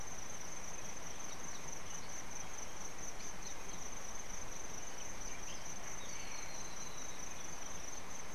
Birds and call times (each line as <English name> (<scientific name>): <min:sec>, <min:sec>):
Spectacled Weaver (Ploceus ocularis): 0:06.5